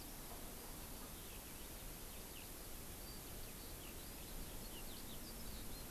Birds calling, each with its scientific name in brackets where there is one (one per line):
Eurasian Skylark (Alauda arvensis)